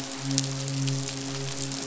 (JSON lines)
{"label": "biophony, midshipman", "recorder": "SoundTrap 500"}